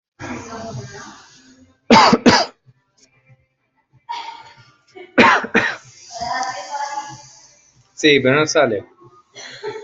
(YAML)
expert_labels:
- quality: ok
  cough_type: dry
  dyspnea: false
  wheezing: false
  stridor: false
  choking: false
  congestion: false
  nothing: true
  diagnosis: lower respiratory tract infection
  severity: mild
- quality: ok
  cough_type: dry
  dyspnea: false
  wheezing: false
  stridor: false
  choking: false
  congestion: false
  nothing: true
  diagnosis: upper respiratory tract infection
  severity: unknown
- quality: good
  cough_type: dry
  dyspnea: false
  wheezing: false
  stridor: false
  choking: false
  congestion: false
  nothing: true
  diagnosis: upper respiratory tract infection
  severity: mild
- quality: ok
  cough_type: dry
  dyspnea: false
  wheezing: false
  stridor: false
  choking: false
  congestion: false
  nothing: true
  diagnosis: healthy cough
  severity: pseudocough/healthy cough
age: 29
gender: male
respiratory_condition: true
fever_muscle_pain: true
status: symptomatic